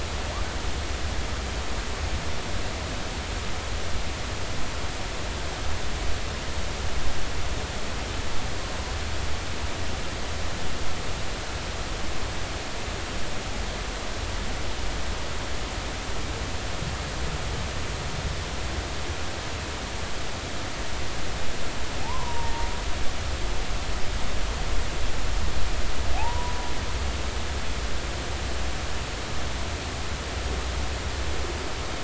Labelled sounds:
22.0	22.7	humpback whale, 0.80 to 1.2 kHz
27.2	27.6	humpback whale, 0.80 to 1.0 kHz

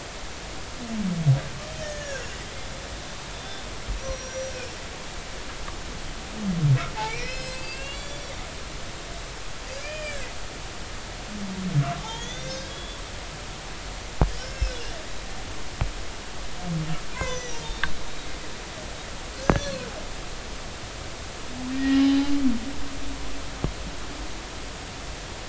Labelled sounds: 1.8	2.4	humpback whale, 1.4 to 6.4 kHz
3.3	4.6	humpback whale, 3.5 to 5.9 kHz
7.1	8.3	humpback whale, 1.9 to 7.9 kHz
9.8	10.3	humpback whale, 1.5 to 5.0 kHz
12.1	13.0	humpback whale, 1.5 to 5.9 kHz
14.3	14.8	humpback whale, 1.5 to 5.4 kHz
17.1	17.6	humpback whale, 0.96 to 6.2 kHz
19.6	19.8	humpback whale, 4.1 to 4.4 kHz
21.7	22.3	humpback whale, 0.80 to 5.2 kHz

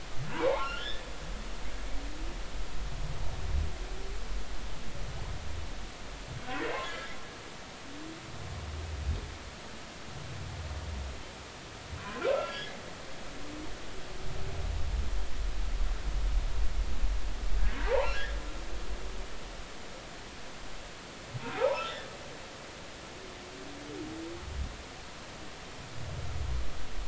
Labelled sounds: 0.3	1.1	humpback whale, 0.80 to 3.7 kHz
6.9	7.1	humpback whale, 1.6 to 1.8 kHz
12.0	12.7	humpback whale, 0.96 to 3.4 kHz
17.8	18.1	humpback whale, 0.80 to 1.2 kHz
21.5	21.8	humpback whale, 0.80 to 1.1 kHz

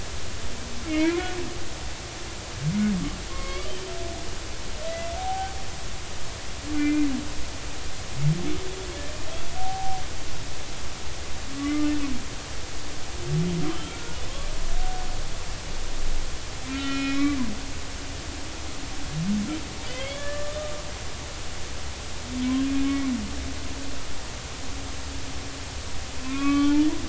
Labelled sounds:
0.9	1.4	humpback whale, 1.3 to 2.5 kHz
3.3	3.7	humpback whale, 1.0 to 2.3 kHz
4.9	5.6	humpback whale, 0.80 to 2.1 kHz
6.7	7.1	humpback whale, 1.4 to 2.5 kHz
9.6	10.0	humpback whale, 0.80 to 0.93 kHz
11.6	11.9	humpback whale, 1.1 to 2.1 kHz
13.7	14.2	humpback whale, 1.3 to 3.3 kHz
16.7	17.4	humpback whale, 1.3 to 5.3 kHz
19.9	20.6	humpback whale, 1.1 to 3.5 kHz
22.8	23.1	humpback whale, 2.1 to 2.2 kHz
26.2	26.9	humpback whale, 0.83 to 4.4 kHz

